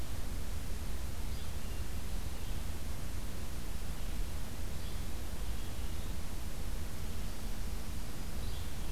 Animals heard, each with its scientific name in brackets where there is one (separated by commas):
Yellow-bellied Flycatcher (Empidonax flaviventris)